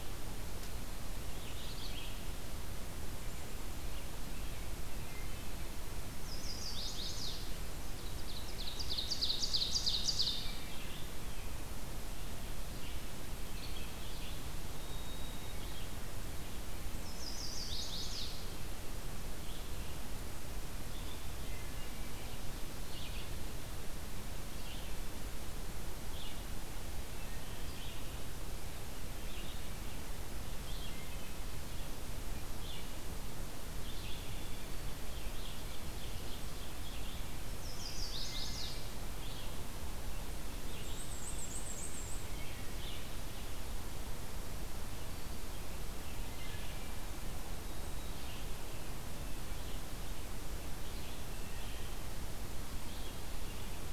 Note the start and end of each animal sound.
0.0s-21.7s: Red-eyed Vireo (Vireo olivaceus)
4.9s-5.6s: Wood Thrush (Hylocichla mustelina)
6.1s-7.5s: Chestnut-sided Warbler (Setophaga pensylvanica)
7.9s-10.5s: Ovenbird (Seiurus aurocapilla)
10.4s-10.8s: Wood Thrush (Hylocichla mustelina)
14.7s-15.6s: White-throated Sparrow (Zonotrichia albicollis)
16.9s-18.5s: Chestnut-sided Warbler (Setophaga pensylvanica)
21.3s-22.1s: Wood Thrush (Hylocichla mustelina)
22.8s-53.2s: Red-eyed Vireo (Vireo olivaceus)
30.7s-31.6s: Wood Thrush (Hylocichla mustelina)
34.1s-34.8s: Wood Thrush (Hylocichla mustelina)
34.8s-37.3s: Ovenbird (Seiurus aurocapilla)
37.4s-38.9s: Chestnut-sided Warbler (Setophaga pensylvanica)
37.7s-38.9s: Wood Thrush (Hylocichla mustelina)
40.6s-42.3s: Black-and-white Warbler (Mniotilta varia)
42.2s-42.8s: Wood Thrush (Hylocichla mustelina)
46.2s-47.0s: Wood Thrush (Hylocichla mustelina)

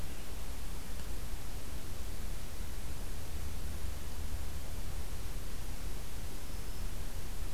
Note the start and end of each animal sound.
6.4s-6.9s: Black-throated Green Warbler (Setophaga virens)

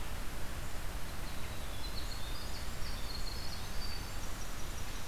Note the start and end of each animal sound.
1.0s-5.1s: Winter Wren (Troglodytes hiemalis)

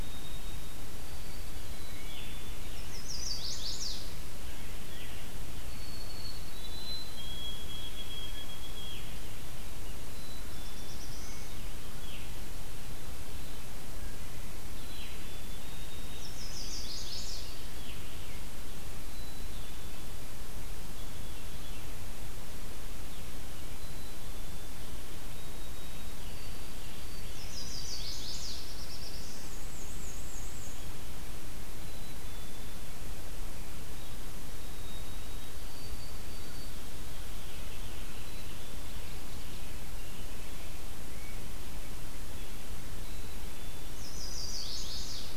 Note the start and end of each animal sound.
0.0s-1.8s: White-throated Sparrow (Zonotrichia albicollis)
1.7s-2.8s: Black-capped Chickadee (Poecile atricapillus)
2.0s-2.3s: Veery (Catharus fuscescens)
2.6s-4.1s: Chestnut-sided Warbler (Setophaga pensylvanica)
5.2s-9.3s: White-throated Sparrow (Zonotrichia albicollis)
8.7s-9.2s: Veery (Catharus fuscescens)
10.1s-10.9s: Black-capped Chickadee (Poecile atricapillus)
10.3s-11.7s: Black-throated Blue Warbler (Setophaga caerulescens)
12.0s-12.5s: Veery (Catharus fuscescens)
14.6s-15.7s: Black-capped Chickadee (Poecile atricapillus)
15.6s-16.6s: White-throated Sparrow (Zonotrichia albicollis)
16.1s-17.8s: Chestnut-sided Warbler (Setophaga pensylvanica)
19.0s-20.0s: Black-capped Chickadee (Poecile atricapillus)
23.7s-24.9s: Black-capped Chickadee (Poecile atricapillus)
25.2s-27.7s: White-throated Sparrow (Zonotrichia albicollis)
27.2s-28.8s: Chestnut-sided Warbler (Setophaga pensylvanica)
28.1s-29.7s: Black-throated Blue Warbler (Setophaga caerulescens)
28.9s-31.1s: Black-and-white Warbler (Mniotilta varia)
31.7s-32.9s: Black-capped Chickadee (Poecile atricapillus)
34.5s-36.9s: White-throated Sparrow (Zonotrichia albicollis)
39.0s-41.8s: Rose-breasted Grosbeak (Pheucticus ludovicianus)
43.0s-44.0s: Black-capped Chickadee (Poecile atricapillus)
43.8s-45.4s: Chestnut-sided Warbler (Setophaga pensylvanica)

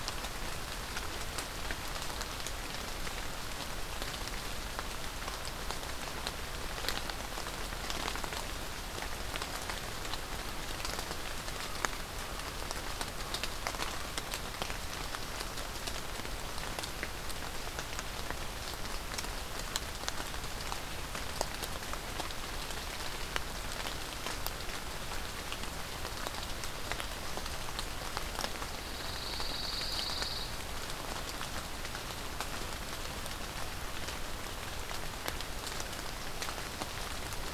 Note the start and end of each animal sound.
11.4s-14.1s: Common Raven (Corvus corax)
28.6s-30.5s: Pine Warbler (Setophaga pinus)

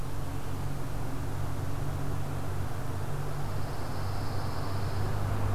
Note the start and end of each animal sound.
3.0s-5.5s: Pine Warbler (Setophaga pinus)

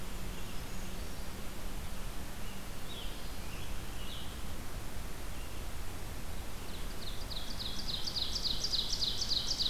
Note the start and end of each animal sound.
0.0s-1.4s: Brown Creeper (Certhia americana)
0.0s-6.9s: Red-eyed Vireo (Vireo olivaceus)
1.8s-4.5s: Scarlet Tanager (Piranga olivacea)
6.5s-9.7s: Ovenbird (Seiurus aurocapilla)

